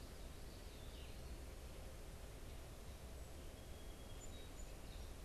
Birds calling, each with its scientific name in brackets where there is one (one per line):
Song Sparrow (Melospiza melodia)
Gray Catbird (Dumetella carolinensis)